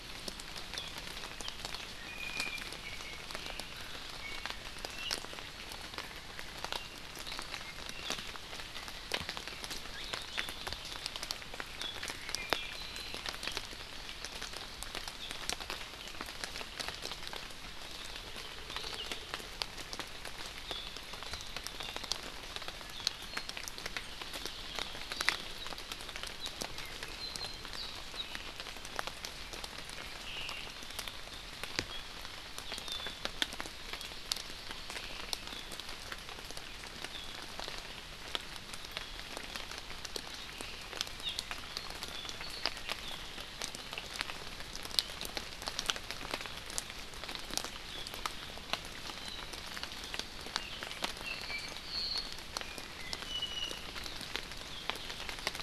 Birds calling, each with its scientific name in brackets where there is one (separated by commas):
Omao (Myadestes obscurus), Iiwi (Drepanis coccinea)